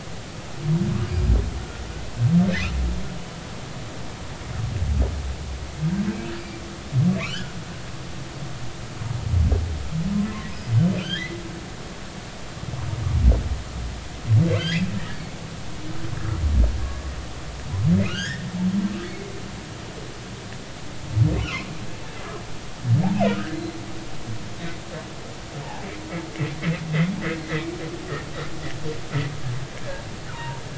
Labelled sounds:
7.2	7.5	humpback whale, 1.0 to 1.8 kHz
11.0	11.4	humpback whale, 1.3 to 3.5 kHz
14.6	14.8	humpback whale, 2.9 to 4.9 kHz
18.0	18.5	humpback whale, 1.4 to 5.3 kHz
19.0	19.3	humpback whale, 2.0 to 2.2 kHz
21.3	21.7	humpback whale, 0.96 to 3.0 kHz
23.1	23.8	humpback whale, 1.2 to 4.2 kHz
30.3	30.6	humpback whale, 0.86 to 1.1 kHz

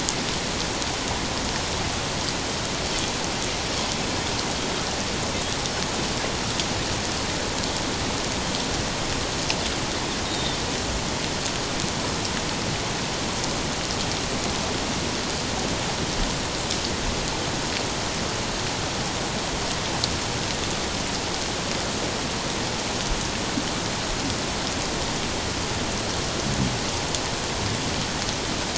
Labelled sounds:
10.3	10.6	Pacific white-sided dolphin, 3.5 to 3.9 kHz

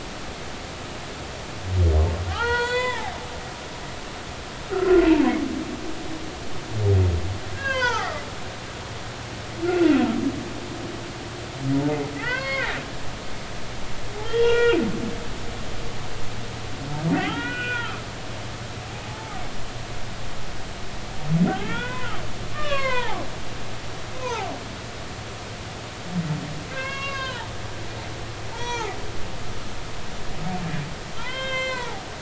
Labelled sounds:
2.3	3.1	humpback whale, 0.80 to 7.5 kHz
4.6	5.3	humpback whale, 0.80 to 1.5 kHz
7.5	8.1	humpback whale, 0.80 to 5.0 kHz
9.6	9.9	humpback whale, 1.3 to 1.5 kHz
12.2	12.8	humpback whale, 0.83 to 4.9 kHz
14.2	14.8	humpback whale, 0.86 to 5.3 kHz
17.1	18.0	humpback whale, 0.80 to 3.4 kHz
19.0	19.4	humpback whale, 0.80 to 0.93 kHz
21.5	23.2	humpback whale, 0.80 to 4.5 kHz
24.1	24.5	humpback whale, 0.80 to 2.6 kHz
26.7	27.5	humpback whale, 0.83 to 5.1 kHz
28.5	29.0	humpback whale, 0.80 to 6.3 kHz
31.2	32.1	humpback whale, 0.80 to 7.9 kHz

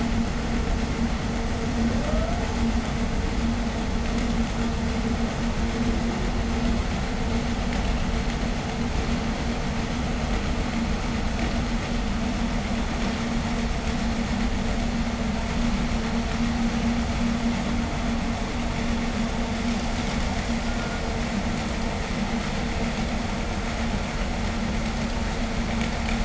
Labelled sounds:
1.8	2.5	humpback whale, ascending moan, 0.29 to 1.6 kHz

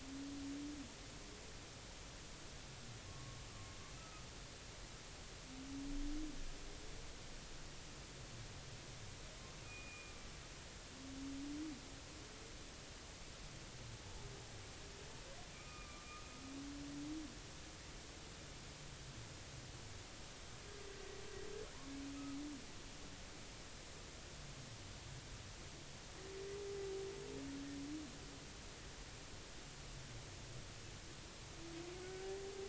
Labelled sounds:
3.1	3.4	humpback whale, 1.0 to 1.2 kHz
4.0	4.3	humpback whale, 1.2 to 1.3 kHz
9.6	10.1	humpback whale, 2.3 to 2.6 kHz
15.5	16.4	humpback whale, 1.1 to 2.6 kHz
32.0	32.3	humpback whale, 1.4 to 1.6 kHz

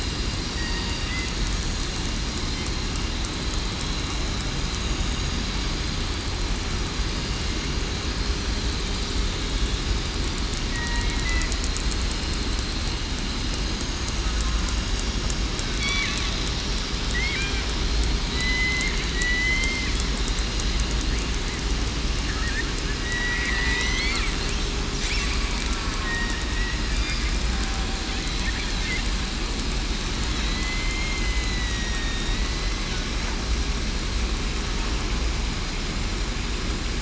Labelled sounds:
10.7	11.1	killer whale, southern resident, 1.85 to 1.95 kHz
18.3	18.8	killer whale, southern resident, 3.8 to 4.1 kHz
19.1	19.6	killer whale, southern resident, 1.9 to 2.1 kHz
23.0	24.2	killer whale, southern resident, 1.9 to 2.2 kHz
30.4	32.3	killer whale, southern resident, 1.8 to 5.7 kHz

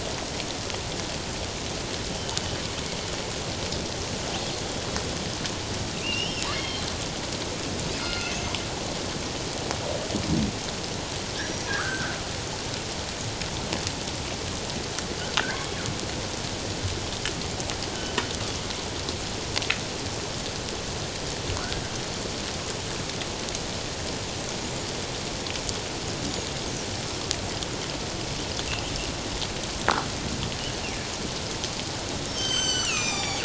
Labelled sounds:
6.0	6.8	killer whale, northern resident, G clan, 2.0 to 5.4 kHz
8.0	8.6	killer whale, northern resident, G clan, 1.3 to 6.4 kHz
11.7	12.1	killer whale, northern resident, G clan, 1.2 to 1.8 kHz
21.6	21.8	killer whale, northern resident, G clan, 1.2 to 1.7 kHz
32.3	33.4	killer whale, northern resident, G clan, 0.78 to 7.8 kHz

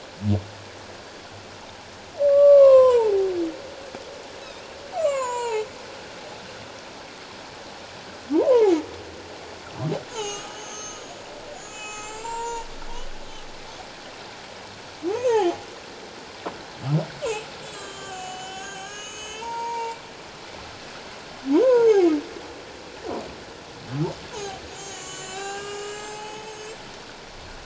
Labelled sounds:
2.3	3.3	humpback whale, 0.78 to 3.8 kHz
4.9	5.6	humpback whale, 0.81 to 7.4 kHz
8.3	8.7	humpback whale, 0.78 to 1.1 kHz
10.1	11.2	humpback whale, 1.2 to 7.0 kHz
11.5	12.7	humpback whale, 0.84 to 8.0 kHz
15.1	15.5	humpback whale, 0.78 to 6.7 kHz
17.6	20.0	humpback whale, 0.78 to 8.0 kHz
21.6	22.1	humpback whale, 0.78 to 1.6 kHz
24.3	26.7	humpback whale, 0.78 to 7.7 kHz

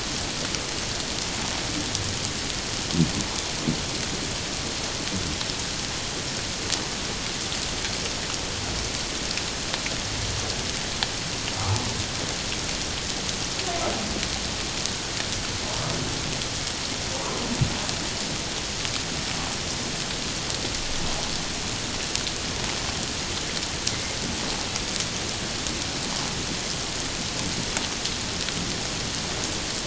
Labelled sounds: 17.1	17.4	humpback whale, 0.88 to 1.2 kHz

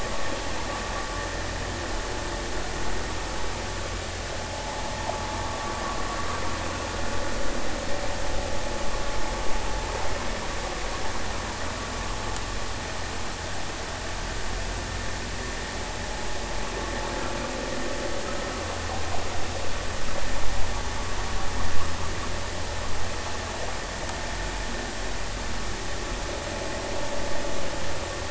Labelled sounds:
4.5	4.8	vessel noise, 0.80 to 1.1 kHz

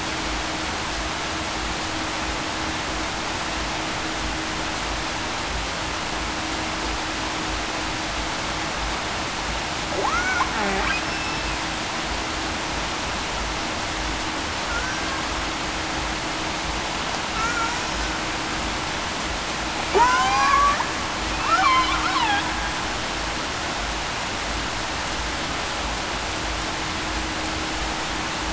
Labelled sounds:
10.1	10.4	killer whale, Bigg's (transient), 1.1 to 1.5 kHz
11.0	11.5	killer whale, Bigg's (transient), 2.6 to 5.4 kHz
14.7	15.2	killer whale, Bigg's (transient), 1.4 to 1.6 kHz
17.3	17.7	killer whale, Bigg's (transient), 1.3 to 1.5 kHz
19.9	20.8	killer whale, Bigg's (transient), 0.73 to 1.2 kHz

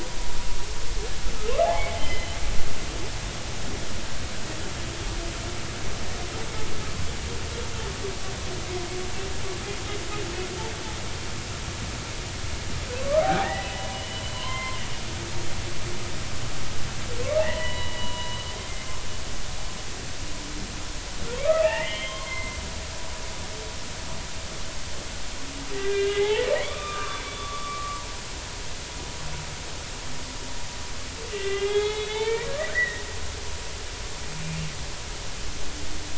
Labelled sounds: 1.7	2.3	humpback whale, 2.0 to 3.1 kHz
13.2	14.8	humpback whale, 0.80 to 3.2 kHz
17.4	18.4	humpback whale, 0.80 to 3.1 kHz
21.4	22.6	humpback whale, 0.96 to 3.2 kHz
25.8	28.0	humpback whale, 0.80 to 2.6 kHz
31.3	33.4	humpback whale, 0.80 to 4.1 kHz

